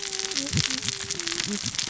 {"label": "biophony, cascading saw", "recorder": "SoundTrap 600 or HydroMoth"}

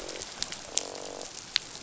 {"label": "biophony, croak", "recorder": "SoundTrap 500"}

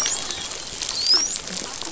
{"label": "biophony, dolphin", "recorder": "SoundTrap 500"}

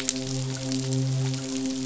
{"label": "biophony, midshipman", "recorder": "SoundTrap 500"}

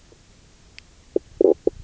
{"label": "biophony, knock croak", "recorder": "SoundTrap 300"}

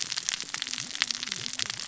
{"label": "biophony, cascading saw", "recorder": "SoundTrap 600 or HydroMoth"}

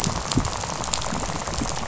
{"label": "biophony, rattle", "recorder": "SoundTrap 500"}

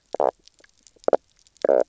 {"label": "biophony, knock croak", "recorder": "SoundTrap 300"}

